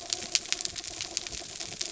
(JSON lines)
{"label": "anthrophony, mechanical", "recorder": "SoundTrap 300"}